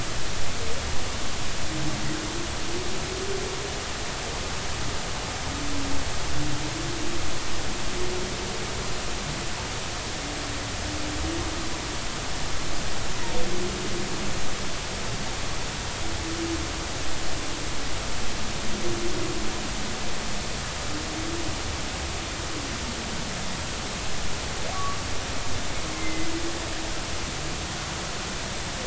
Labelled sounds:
24.7	25.0	humpback whale, 1.1 to 1.2 kHz
25.9	26.3	humpback whale, 2.0 to 2.1 kHz

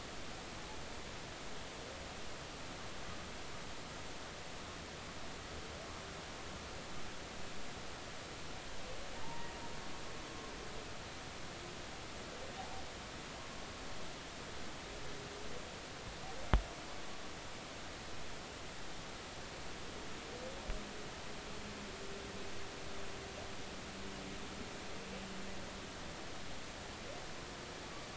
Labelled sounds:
9.2	9.5	humpback whale, 0.83 to 1.0 kHz
12.6	12.8	humpback whale, 0.80 to 0.93 kHz

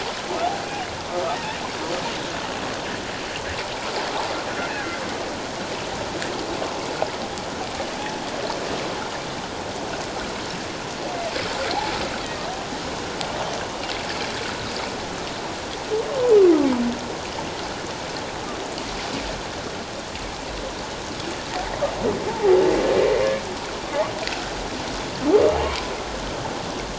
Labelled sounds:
22.3	22.6	humpback whale, 0.78 to 0.97 kHz

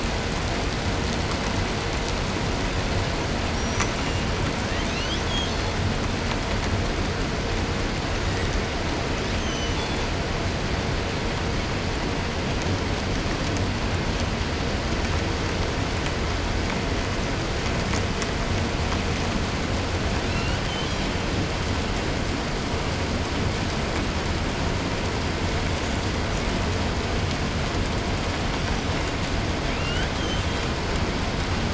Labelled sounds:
3.5	4.3	killer whale, southern resident, 0.46 to 8.0 kHz
4.5	5.8	killer whale, 0.88 to 7.2 kHz
9.1	10.1	killer whale, southern resident, 1.8 to 8.0 kHz
20.0	21.3	killer whale, 0.58 to 7.3 kHz
28.4	29.0	killer whale, 4.9 to 6.3 kHz
29.6	30.8	killer whale, southern resident, 1.1 to 8.0 kHz

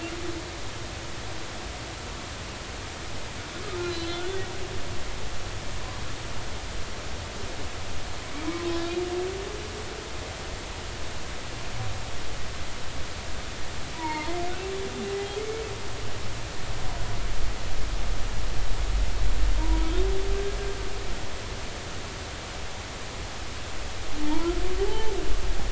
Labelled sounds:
3.8	4.5	humpback whale, 1.8 to 4.2 kHz
13.9	14.4	humpback whale, 0.86 to 4.4 kHz
19.6	19.9	humpback whale, 0.90 to 1.0 kHz
24.2	24.5	humpback whale, 0.86 to 1.1 kHz
24.8	25.1	humpback whale, 0.80 to 0.93 kHz

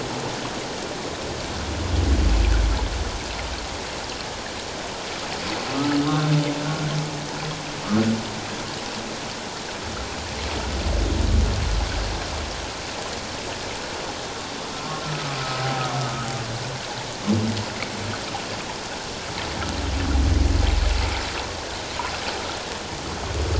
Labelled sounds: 15.0	15.7	humpback whale, 1.2 to 1.4 kHz
16.0	16.3	humpback whale, 1.2 to 1.3 kHz

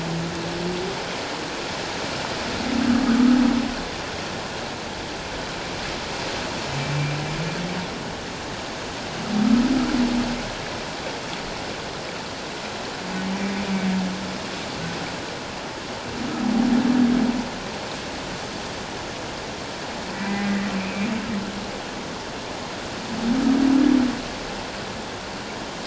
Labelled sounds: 20.1	20.6	humpback whale, 1.8 to 2.4 kHz

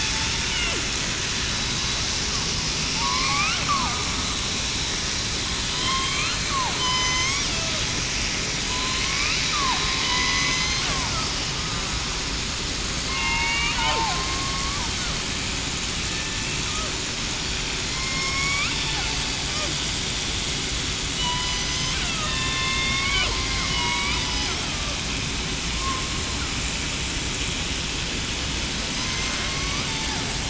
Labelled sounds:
3.0	3.6	killer whale, southern resident, 0.89 to 2.7 kHz
5.7	6.3	killer whale, southern resident, 0.98 to 3.2 kHz
6.8	7.4	killer whale, southern resident, 0.94 to 6.5 kHz
8.6	9.4	killer whale, southern resident, 0.96 to 1.4 kHz
10.0	10.5	killer whale, southern resident, 1.9 to 2.0 kHz
13.1	14.8	killer whale, southern resident, 0.84 to 2.5 kHz
16.3	16.6	killer whale, southern resident, 2.6 to 2.7 kHz
17.8	18.1	killer whale, southern resident, 4.0 to 4.2 kHz
21.2	21.6	killer whale, southern resident, 0.94 to 3.0 kHz
22.2	22.7	killer whale, southern resident, 2.6 to 3.8 kHz
23.6	24.1	killer whale, southern resident, 0.91 to 2.4 kHz
29.1	29.6	killer whale, southern resident, 5.2 to 5.4 kHz
29.9	30.2	killer whale, southern resident, 0.73 to 0.94 kHz

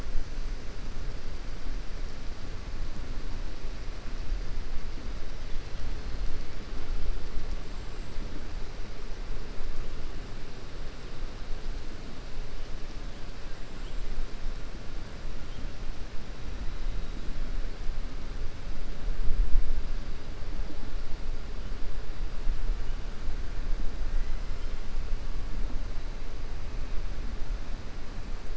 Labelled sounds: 7.6	8.1	killer whale, 7.4 to 8.0 kHz

